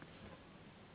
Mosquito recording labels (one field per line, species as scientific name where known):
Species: Anopheles gambiae s.s.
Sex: female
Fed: unfed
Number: one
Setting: insect culture